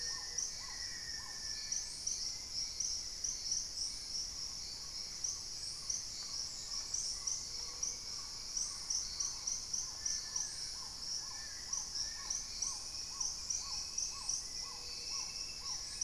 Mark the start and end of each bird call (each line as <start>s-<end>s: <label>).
0.0s-0.6s: Gray-fronted Dove (Leptotila rufaxilla)
0.0s-2.1s: Black-faced Antthrush (Formicarius analis)
0.0s-16.0s: Black-tailed Trogon (Trogon melanurus)
0.0s-16.0s: Hauxwell's Thrush (Turdus hauxwelli)
0.0s-16.0s: Paradise Tanager (Tangara chilensis)
2.4s-4.0s: unidentified bird
7.2s-8.3s: Gray-fronted Dove (Leptotila rufaxilla)
9.8s-12.6s: Long-billed Woodcreeper (Nasica longirostris)
14.4s-15.5s: Gray-fronted Dove (Leptotila rufaxilla)